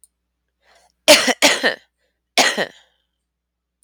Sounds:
Cough